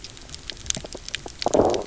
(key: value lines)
label: biophony, low growl
recorder: SoundTrap 300